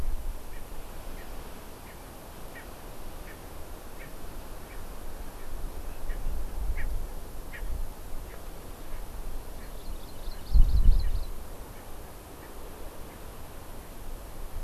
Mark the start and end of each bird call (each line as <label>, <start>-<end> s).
Erckel's Francolin (Pternistis erckelii), 0.5-0.6 s
Erckel's Francolin (Pternistis erckelii), 1.1-1.3 s
Erckel's Francolin (Pternistis erckelii), 1.9-2.0 s
Erckel's Francolin (Pternistis erckelii), 2.5-2.7 s
Erckel's Francolin (Pternistis erckelii), 3.3-3.4 s
Erckel's Francolin (Pternistis erckelii), 4.0-4.1 s
Erckel's Francolin (Pternistis erckelii), 4.7-4.8 s
Erckel's Francolin (Pternistis erckelii), 6.1-6.2 s
Erckel's Francolin (Pternistis erckelii), 6.8-6.9 s
Erckel's Francolin (Pternistis erckelii), 7.5-7.7 s
Erckel's Francolin (Pternistis erckelii), 8.3-8.4 s
Erckel's Francolin (Pternistis erckelii), 8.9-9.1 s
Erckel's Francolin (Pternistis erckelii), 9.6-9.8 s
Hawaii Amakihi (Chlorodrepanis virens), 9.6-11.4 s
Erckel's Francolin (Pternistis erckelii), 12.4-12.5 s